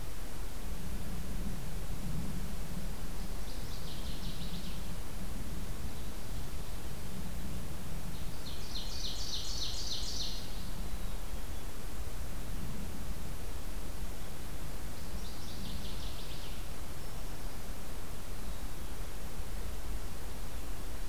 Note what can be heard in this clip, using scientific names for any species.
Parkesia noveboracensis, Seiurus aurocapilla, Setophaga virens